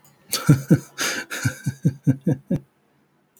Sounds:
Laughter